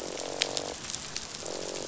{"label": "biophony, croak", "recorder": "SoundTrap 500"}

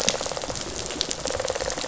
{"label": "biophony, rattle response", "recorder": "SoundTrap 500"}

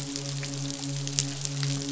{"label": "biophony, midshipman", "recorder": "SoundTrap 500"}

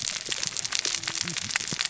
{"label": "biophony, cascading saw", "recorder": "SoundTrap 600 or HydroMoth"}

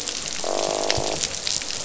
{"label": "biophony, croak", "recorder": "SoundTrap 500"}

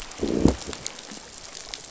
{"label": "biophony, growl", "recorder": "SoundTrap 500"}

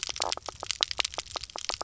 {"label": "biophony, knock croak", "recorder": "SoundTrap 300"}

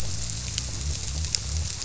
{"label": "biophony", "recorder": "SoundTrap 300"}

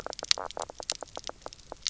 {"label": "biophony, knock croak", "recorder": "SoundTrap 300"}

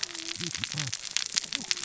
{"label": "biophony, cascading saw", "recorder": "SoundTrap 600 or HydroMoth"}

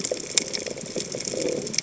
{"label": "biophony", "recorder": "HydroMoth"}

